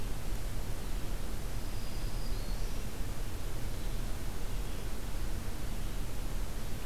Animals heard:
Black-throated Green Warbler (Setophaga virens)

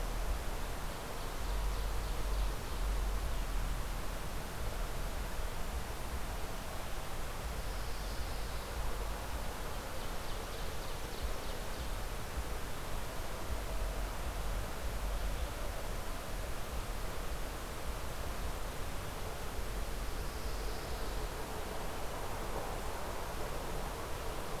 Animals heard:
Ovenbird (Seiurus aurocapilla)
Pine Warbler (Setophaga pinus)

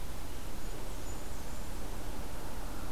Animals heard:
Blackburnian Warbler (Setophaga fusca)

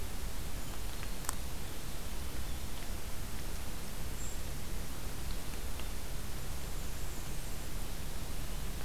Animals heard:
Black-and-white Warbler (Mniotilta varia)
Golden-crowned Kinglet (Regulus satrapa)

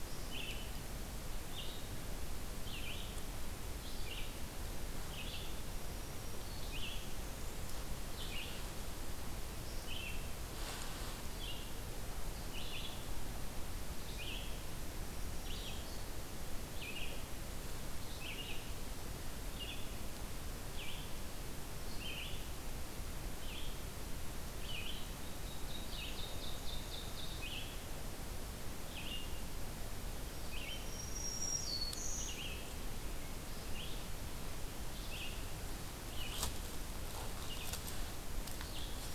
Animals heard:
Red-eyed Vireo (Vireo olivaceus)
Ovenbird (Seiurus aurocapilla)
Northern Parula (Setophaga americana)
Black-throated Green Warbler (Setophaga virens)

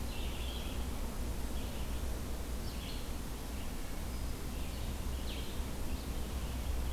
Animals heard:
Red-eyed Vireo (Vireo olivaceus)

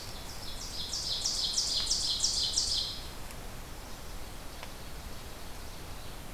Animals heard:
Ovenbird (Seiurus aurocapilla)

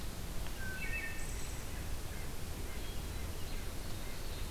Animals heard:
White-breasted Nuthatch (Sitta carolinensis)
Wood Thrush (Hylocichla mustelina)
Hermit Thrush (Catharus guttatus)

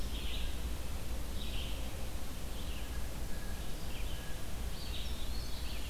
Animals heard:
Red-eyed Vireo (Vireo olivaceus)
Winter Wren (Troglodytes hiemalis)
Blue Jay (Cyanocitta cristata)
Eastern Wood-Pewee (Contopus virens)

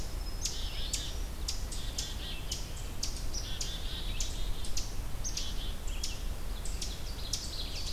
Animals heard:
Ovenbird (Seiurus aurocapilla)
Black-capped Chickadee (Poecile atricapillus)
Red-eyed Vireo (Vireo olivaceus)

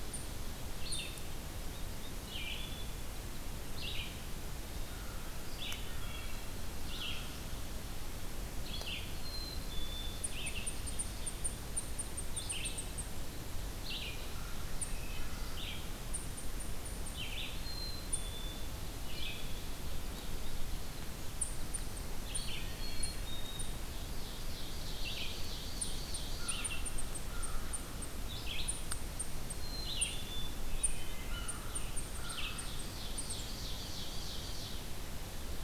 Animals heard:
Black-capped Chickadee (Poecile atricapillus)
Eastern Chipmunk (Tamias striatus)
Ovenbird (Seiurus aurocapilla)
Blue Jay (Cyanocitta cristata)
Hermit Thrush (Catharus guttatus)
American Crow (Corvus brachyrhynchos)
Red-eyed Vireo (Vireo olivaceus)

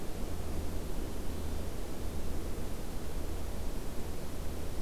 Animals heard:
Hermit Thrush (Catharus guttatus)

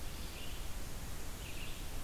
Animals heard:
Red-eyed Vireo (Vireo olivaceus)

